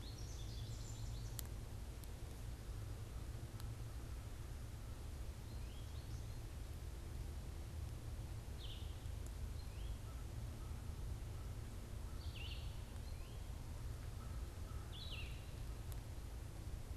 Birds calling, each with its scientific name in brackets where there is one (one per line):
unidentified bird
American Crow (Corvus brachyrhynchos)